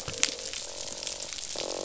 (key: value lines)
label: biophony, croak
recorder: SoundTrap 500